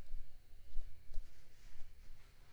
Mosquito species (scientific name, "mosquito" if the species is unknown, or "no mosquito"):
Mansonia africanus